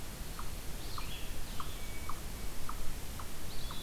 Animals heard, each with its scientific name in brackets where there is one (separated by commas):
unknown mammal, Red-eyed Vireo (Vireo olivaceus), Blue Jay (Cyanocitta cristata), Eastern Wood-Pewee (Contopus virens)